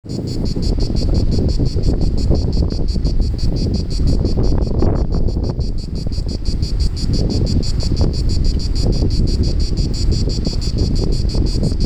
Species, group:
Cicada orni, Cicadidae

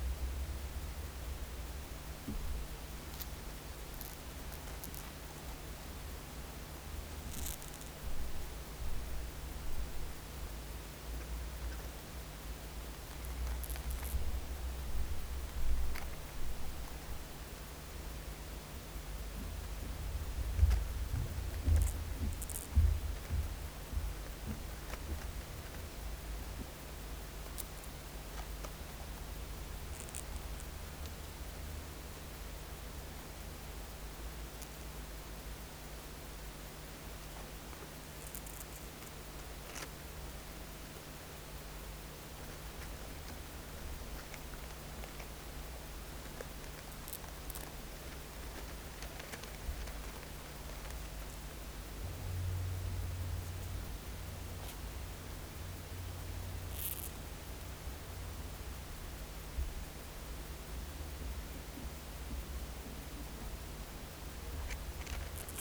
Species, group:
Chorthippus acroleucus, Orthoptera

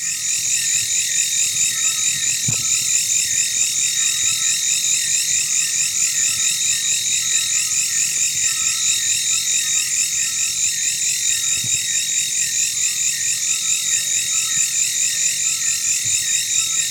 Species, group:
Mecopoda elongata, Orthoptera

